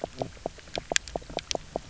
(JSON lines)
{"label": "biophony, knock croak", "recorder": "SoundTrap 300"}